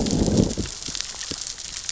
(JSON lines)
{"label": "biophony, growl", "recorder": "SoundTrap 600 or HydroMoth"}